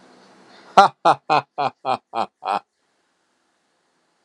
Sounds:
Laughter